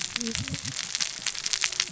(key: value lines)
label: biophony, cascading saw
recorder: SoundTrap 600 or HydroMoth